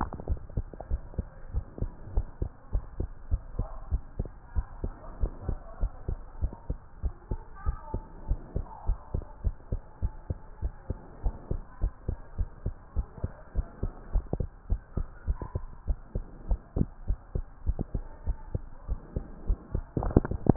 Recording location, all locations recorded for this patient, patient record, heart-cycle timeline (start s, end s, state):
tricuspid valve (TV)
aortic valve (AV)+pulmonary valve (PV)+tricuspid valve (TV)+mitral valve (MV)
#Age: Child
#Sex: Female
#Height: nan
#Weight: nan
#Pregnancy status: False
#Murmur: Absent
#Murmur locations: nan
#Most audible location: nan
#Systolic murmur timing: nan
#Systolic murmur shape: nan
#Systolic murmur grading: nan
#Systolic murmur pitch: nan
#Systolic murmur quality: nan
#Diastolic murmur timing: nan
#Diastolic murmur shape: nan
#Diastolic murmur grading: nan
#Diastolic murmur pitch: nan
#Diastolic murmur quality: nan
#Outcome: Normal
#Campaign: 2015 screening campaign
0.00	0.76	unannotated
0.76	0.89	diastole
0.89	1.04	S1
1.04	1.16	systole
1.16	1.28	S2
1.28	1.52	diastole
1.52	1.64	S1
1.64	1.78	systole
1.78	1.92	S2
1.92	2.10	diastole
2.10	2.28	S1
2.28	2.40	systole
2.40	2.52	S2
2.52	2.72	diastole
2.72	2.84	S1
2.84	2.96	systole
2.96	3.08	S2
3.08	3.26	diastole
3.26	3.44	S1
3.44	3.56	systole
3.56	3.70	S2
3.70	3.90	diastole
3.90	4.02	S1
4.02	4.18	systole
4.18	4.32	S2
4.32	4.54	diastole
4.54	4.66	S1
4.66	4.80	systole
4.80	4.94	S2
4.94	5.16	diastole
5.16	5.32	S1
5.32	5.46	systole
5.46	5.60	S2
5.60	5.80	diastole
5.80	5.92	S1
5.92	6.08	systole
6.08	6.20	S2
6.20	6.40	diastole
6.40	6.52	S1
6.52	6.66	systole
6.66	6.78	S2
6.78	7.02	diastole
7.02	7.14	S1
7.14	7.30	systole
7.30	7.42	S2
7.42	7.64	diastole
7.64	7.76	S1
7.76	7.90	systole
7.90	8.02	S2
8.02	8.24	diastole
8.24	8.40	S1
8.40	8.55	systole
8.55	8.68	S2
8.68	8.86	diastole
8.86	8.98	S1
8.98	9.12	systole
9.12	9.26	S2
9.26	9.44	diastole
9.44	9.56	S1
9.56	9.72	systole
9.72	9.82	S2
9.82	10.00	diastole
10.00	10.12	S1
10.12	10.26	systole
10.26	10.40	S2
10.40	10.60	diastole
10.60	10.72	S1
10.72	10.86	systole
10.86	10.98	S2
10.98	11.22	diastole
11.22	11.34	S1
11.34	11.50	systole
11.50	11.62	S2
11.62	11.82	diastole
11.82	11.94	S1
11.94	12.06	systole
12.06	12.20	S2
12.20	12.38	diastole
12.38	12.50	S1
12.50	12.64	systole
12.64	12.74	S2
12.74	12.94	diastole
12.94	13.06	S1
13.06	13.22	systole
13.22	13.34	S2
13.34	13.54	diastole
13.54	13.66	S1
13.66	13.82	systole
13.82	13.92	S2
13.92	14.10	diastole
14.10	14.24	S1
14.24	14.38	systole
14.38	14.50	S2
14.50	14.68	diastole
14.68	14.82	S1
14.82	14.95	systole
14.95	15.08	S2
15.08	15.24	diastole
15.24	15.40	S1
15.40	15.53	systole
15.53	15.68	S2
15.68	15.86	diastole
15.86	16.00	S1
16.00	16.14	systole
16.14	16.24	S2
16.24	16.46	diastole
16.46	16.60	S1
16.60	16.76	systole
16.76	16.88	S2
16.88	17.06	diastole
17.06	17.18	S1
17.18	17.34	systole
17.34	17.46	S2
17.46	17.64	diastole
17.64	17.78	S1
17.78	17.93	systole
17.93	18.06	S2
18.06	18.24	diastole
18.24	18.38	S1
18.38	18.52	systole
18.52	18.64	S2
18.64	18.86	diastole
18.86	19.00	S1
19.00	19.13	systole
19.13	19.24	S2
19.24	19.44	diastole
19.44	19.58	S1
19.58	19.71	systole
19.71	20.56	unannotated